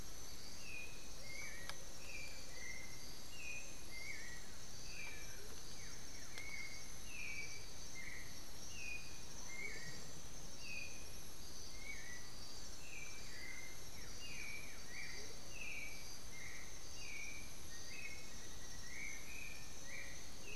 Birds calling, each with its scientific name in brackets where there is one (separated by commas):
Black-billed Thrush (Turdus ignobilis), Black-faced Antthrush (Formicarius analis), Amazonian Motmot (Momotus momota), Undulated Tinamou (Crypturellus undulatus), Blue-gray Saltator (Saltator coerulescens)